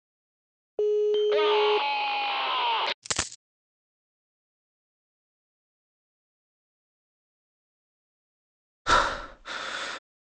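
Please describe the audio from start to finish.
First, at 0.76 seconds, the sound of a telephone is heard. Over it, at 1.11 seconds, someone screams. After that, at 3.02 seconds, a coin drops. Next, at 8.85 seconds, breathing is audible.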